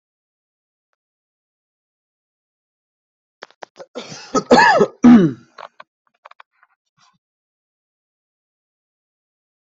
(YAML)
expert_labels:
- quality: good
  cough_type: dry
  dyspnea: false
  wheezing: false
  stridor: false
  choking: false
  congestion: false
  nothing: true
  diagnosis: healthy cough
  severity: pseudocough/healthy cough
age: 23
gender: male
respiratory_condition: false
fever_muscle_pain: false
status: healthy